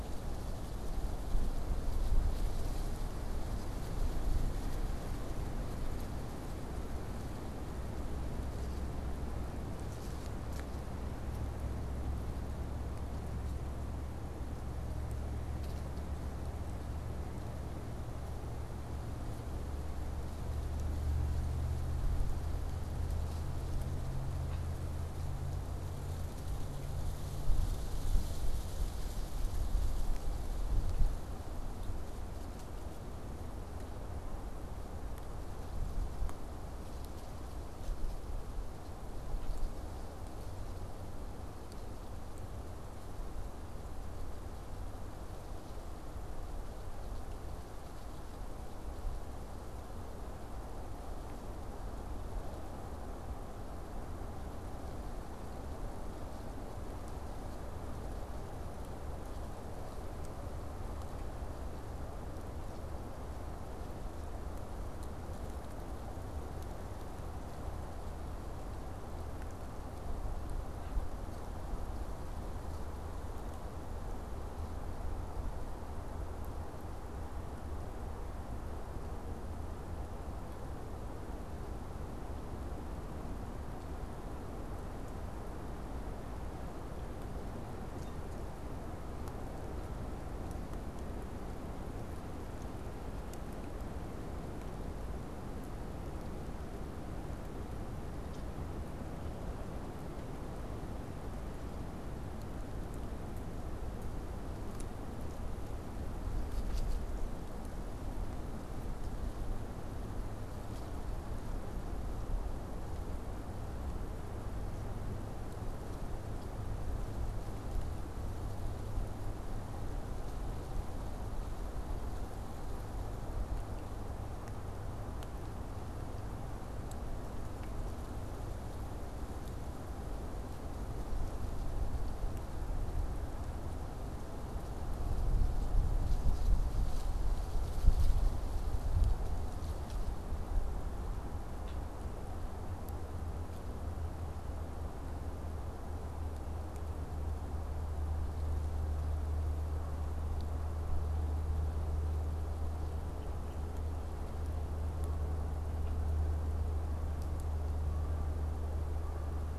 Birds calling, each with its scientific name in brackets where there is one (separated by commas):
Canada Goose (Branta canadensis)